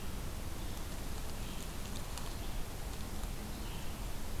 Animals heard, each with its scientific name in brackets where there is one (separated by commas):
Red-eyed Vireo (Vireo olivaceus)